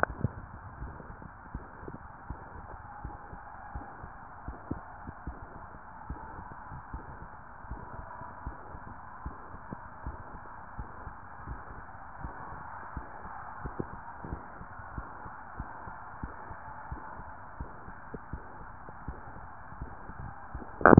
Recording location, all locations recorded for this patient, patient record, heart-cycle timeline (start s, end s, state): mitral valve (MV)
aortic valve (AV)+pulmonary valve (PV)+tricuspid valve (TV)+mitral valve (MV)
#Age: Adolescent
#Sex: Male
#Height: 174.0 cm
#Weight: 108.6 kg
#Pregnancy status: False
#Murmur: Present
#Murmur locations: mitral valve (MV)+pulmonary valve (PV)+tricuspid valve (TV)
#Most audible location: tricuspid valve (TV)
#Systolic murmur timing: Holosystolic
#Systolic murmur shape: Plateau
#Systolic murmur grading: I/VI
#Systolic murmur pitch: Low
#Systolic murmur quality: Blowing
#Diastolic murmur timing: nan
#Diastolic murmur shape: nan
#Diastolic murmur grading: nan
#Diastolic murmur pitch: nan
#Diastolic murmur quality: nan
#Outcome: Abnormal
#Campaign: 2015 screening campaign
0.00	1.20	unannotated
1.20	1.52	diastole
1.52	1.66	S1
1.66	1.82	systole
1.82	1.94	S2
1.94	2.26	diastole
2.26	2.40	S1
2.40	2.56	systole
2.56	2.68	S2
2.68	3.00	diastole
3.00	3.14	S1
3.14	3.30	systole
3.30	3.40	S2
3.40	3.72	diastole
3.72	3.86	S1
3.86	4.00	systole
4.00	4.12	S2
4.12	4.44	diastole
4.44	4.56	S1
4.56	4.70	systole
4.70	4.84	S2
4.84	5.05	diastole
5.05	5.16	S1
5.16	5.25	systole
5.25	5.36	S2
5.36	6.06	diastole
6.06	6.22	S1
6.22	6.38	systole
6.38	6.50	S2
6.50	6.90	diastole
6.90	7.04	S1
7.04	7.20	systole
7.20	7.30	S2
7.30	7.68	diastole
7.68	7.82	S1
7.82	7.98	systole
7.98	8.10	S2
8.10	8.42	diastole
8.42	8.58	S1
8.58	8.72	systole
8.72	8.82	S2
8.82	9.22	diastole
9.22	9.36	S1
9.36	9.52	systole
9.52	9.64	S2
9.64	10.04	diastole
10.04	10.18	S1
10.18	10.32	systole
10.32	10.42	S2
10.42	10.76	diastole
10.76	10.90	S1
10.90	11.06	systole
11.06	11.16	S2
11.16	11.48	diastole
11.48	11.62	S1
11.62	11.76	systole
11.76	11.84	S2
11.84	12.20	diastole
12.20	12.34	S1
12.34	12.50	systole
12.50	12.60	S2
12.60	12.94	diastole
12.94	13.06	S1
13.06	13.24	systole
13.24	13.32	S2
13.32	13.64	diastole
13.64	20.99	unannotated